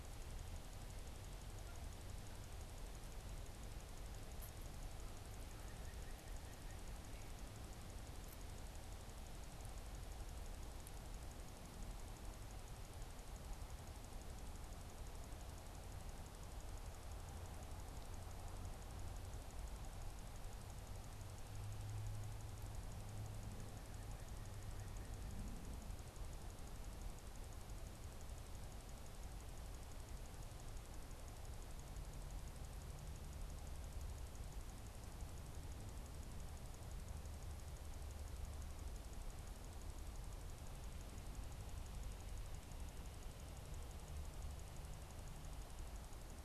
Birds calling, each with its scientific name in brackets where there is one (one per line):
White-breasted Nuthatch (Sitta carolinensis)